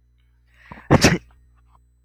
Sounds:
Sneeze